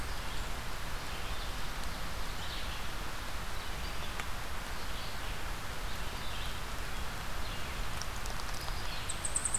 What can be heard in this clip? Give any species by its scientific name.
Vireo olivaceus, unidentified call